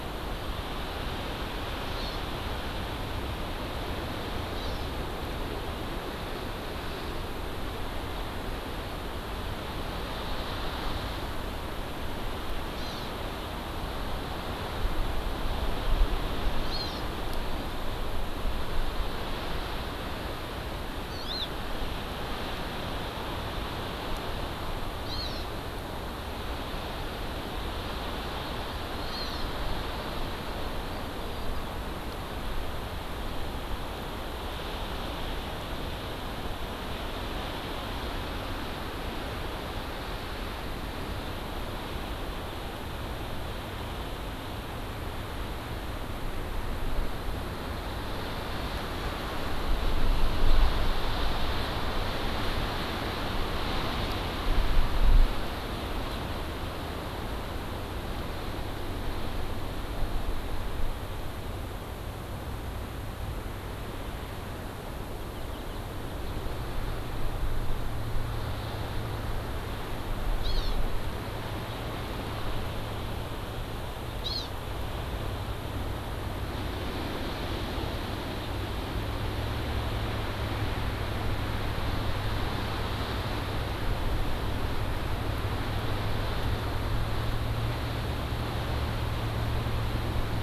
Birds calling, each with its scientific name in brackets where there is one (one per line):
Hawaii Amakihi (Chlorodrepanis virens)